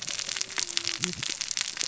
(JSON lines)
{"label": "biophony, cascading saw", "recorder": "SoundTrap 600 or HydroMoth"}